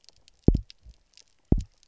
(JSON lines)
{"label": "biophony, double pulse", "recorder": "SoundTrap 300"}